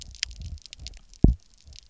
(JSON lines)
{"label": "biophony, double pulse", "recorder": "SoundTrap 300"}